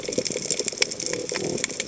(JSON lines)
{"label": "biophony", "recorder": "HydroMoth"}